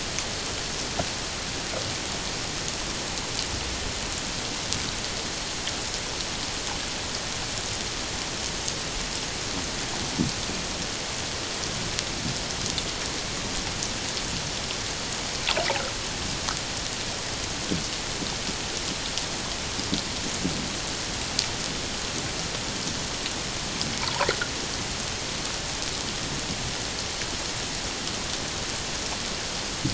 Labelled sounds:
24.0	24.3	water noise, 0.81 to 1.1 kHz

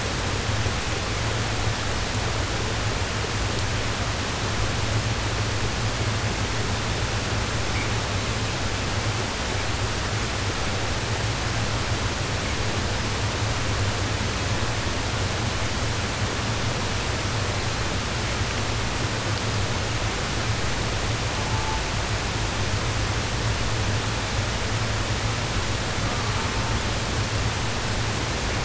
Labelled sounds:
21.2	21.9	killer whale, southern resident, 0.45 to 1.6 kHz
26.0	26.9	killer whale, southern resident, 0.42 to 1.6 kHz

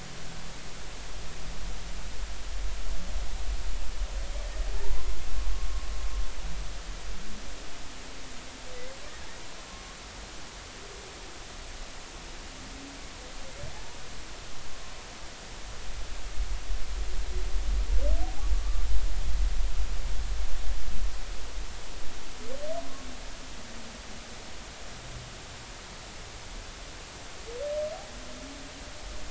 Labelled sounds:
4.8	5.1	humpback whale, 0.83 to 1.1 kHz
18.6	18.9	humpback whale, 1.1 to 1.3 kHz

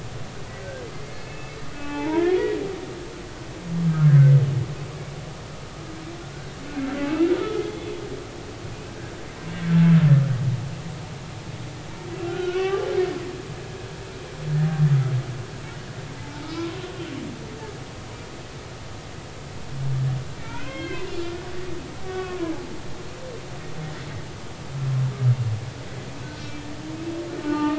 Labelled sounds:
0.9	2.4	humpback whale, 0.80 to 3.6 kHz
3.9	4.3	humpback whale, 1.2 to 1.7 kHz
7.0	7.9	humpback whale, 1.2 to 3.5 kHz
8.9	9.1	humpback whale, 1.5 to 1.7 kHz
12.2	12.9	humpback whale, 1.1 to 3.1 kHz
16.2	16.8	humpback whale, 0.83 to 2.4 kHz
20.4	21.4	humpback whale, 0.96 to 3.6 kHz
22.1	22.4	humpback whale, 1.1 to 3.4 kHz
26.3	27.7	humpback whale, 0.83 to 4.3 kHz

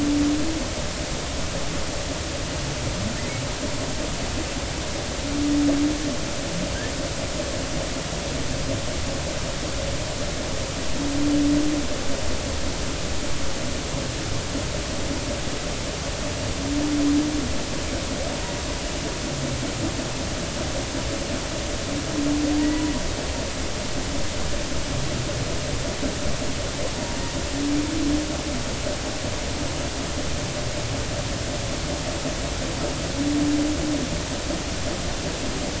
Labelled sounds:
22.6	22.8	humpback whale, 1.9 to 2.0 kHz

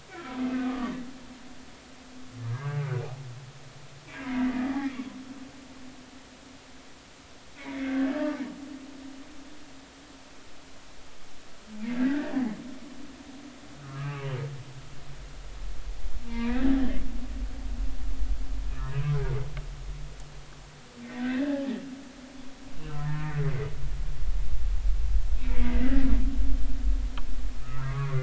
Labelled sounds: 0.1	0.9	humpback whale, 1.1 to 1.6 kHz
2.6	2.9	humpback whale, 2.0 to 2.2 kHz
3.5	5.1	humpback whale, 0.80 to 2.4 kHz
7.6	8.1	humpback whale, 1.5 to 2.5 kHz
12.0	12.3	humpback whale, 1.4 to 2.0 kHz
13.8	14.3	humpback whale, 1.0 to 2.9 kHz
16.3	16.7	humpback whale, 0.86 to 2.7 kHz
21.2	21.6	humpback whale, 1.5 to 2.1 kHz
23.0	23.7	humpback whale, 1.6 to 2.2 kHz
25.4	26.1	humpback whale, 1.9 to 2.8 kHz
27.6	28.2	humpback whale, 1.0 to 1.5 kHz

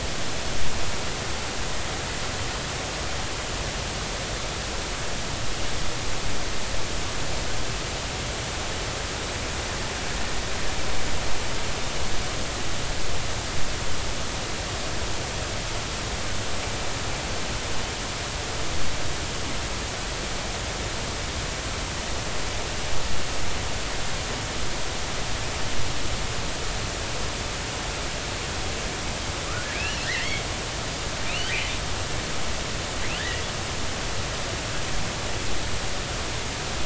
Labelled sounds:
29.7	30.4	killer whale, offshore, 1.5 to 3.0 kHz
31.2	31.5	killer whale, offshore, 2.3 to 3.3 kHz
33.2	33.4	killer whale, offshore, 1.6 to 2.0 kHz

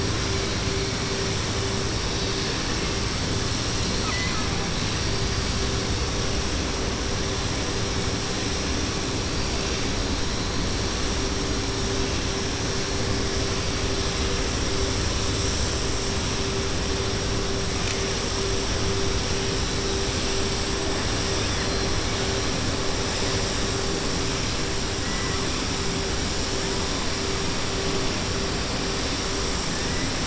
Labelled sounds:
3.8	4.5	killer whale, 1.0 to 4.8 kHz

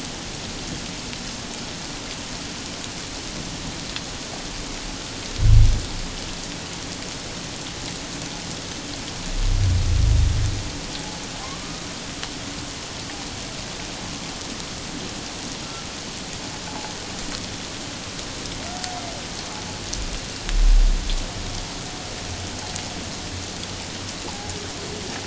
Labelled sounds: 11.4	11.8	humpback whale, 0.97 to 1.3 kHz
24.3	24.5	humpback whale, 0.78 to 1.0 kHz

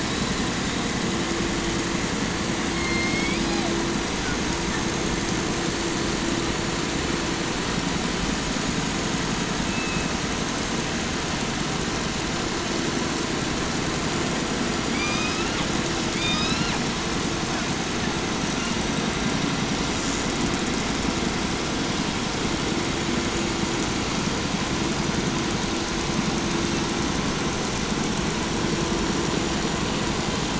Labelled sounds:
0.0	1.3	killer whale, 3.4 to 4.5 kHz
2.6	4.0	killer whale, southern resident, J pod, call S01, 0.43 to 6.2 kHz
4.2	4.9	killer whale, 1.2 to 2.1 kHz
9.5	10.3	killer whale, 2.0 to 3.0 kHz
14.9	15.7	killer whale, 0.54 to 7.4 kHz
16.1	16.9	killer whale, 0.54 to 6.0 kHz

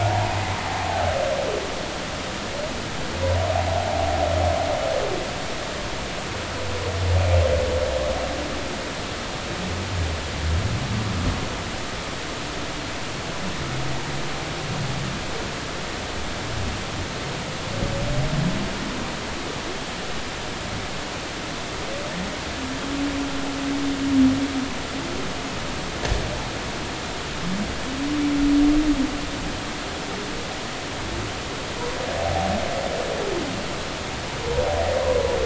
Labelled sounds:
0.0	0.4	humpback whale, 0.80 to 1.1 kHz
32.2	32.5	humpback whale, 0.80 to 0.86 kHz

